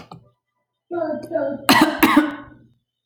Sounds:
Cough